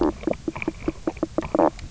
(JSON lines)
{"label": "biophony, knock croak", "recorder": "SoundTrap 300"}